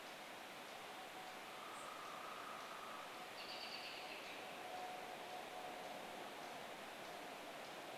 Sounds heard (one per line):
woodpecker drumming
American Robin call
unidentified bird chip note